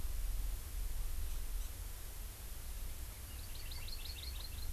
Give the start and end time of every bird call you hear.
3.3s-4.7s: Hawaii Amakihi (Chlorodrepanis virens)

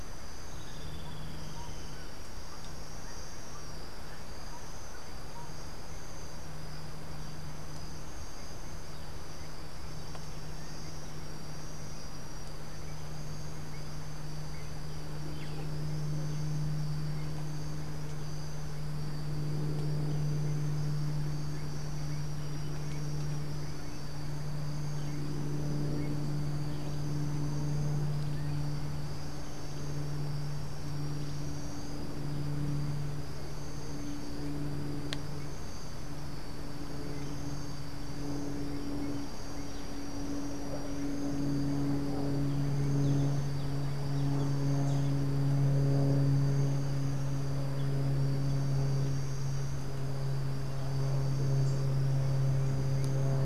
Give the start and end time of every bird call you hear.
15.3s-15.7s: Boat-billed Flycatcher (Megarynchus pitangua)
20.5s-25.6s: Gray-headed Chachalaca (Ortalis cinereiceps)

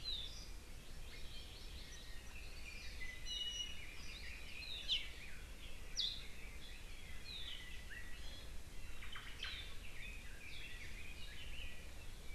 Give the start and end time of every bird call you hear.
0.8s-1.9s: Hawaii Amakihi (Chlorodrepanis virens)
3.0s-3.9s: Iiwi (Drepanis coccinea)
8.1s-8.5s: Iiwi (Drepanis coccinea)
9.0s-9.5s: Omao (Myadestes obscurus)
9.8s-12.0s: Red-billed Leiothrix (Leiothrix lutea)

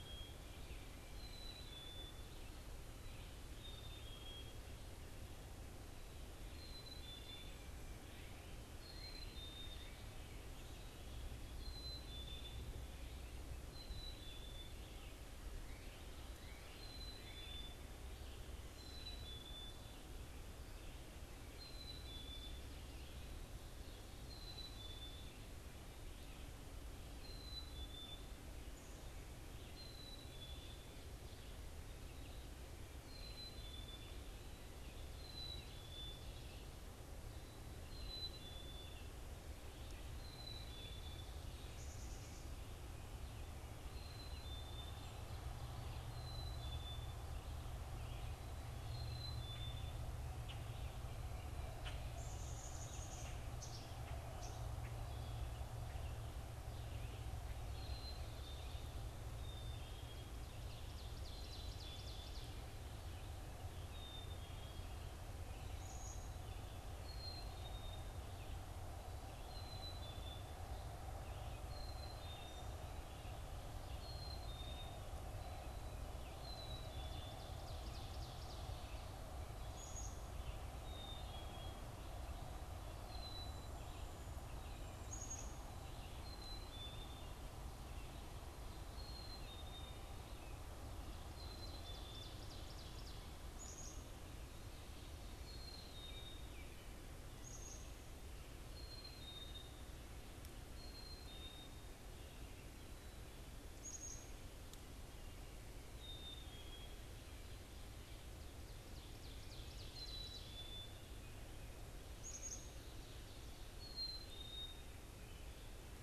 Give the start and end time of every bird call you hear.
0.0s-39.2s: Black-capped Chickadee (Poecile atricapillus)
40.0s-96.7s: Black-capped Chickadee (Poecile atricapillus)
60.3s-62.7s: Ovenbird (Seiurus aurocapilla)
76.5s-78.8s: Ovenbird (Seiurus aurocapilla)
91.4s-93.3s: Ovenbird (Seiurus aurocapilla)
97.3s-116.0s: Black-capped Chickadee (Poecile atricapillus)
108.5s-110.8s: Ovenbird (Seiurus aurocapilla)

